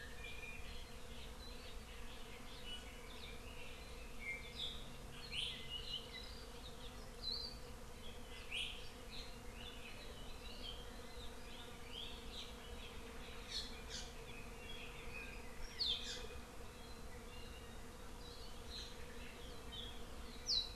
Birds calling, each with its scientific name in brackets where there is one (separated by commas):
Hawaii Akepa (Loxops coccineus), Iiwi (Drepanis coccinea)